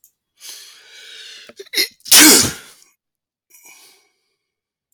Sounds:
Sneeze